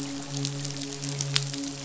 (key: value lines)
label: biophony, midshipman
recorder: SoundTrap 500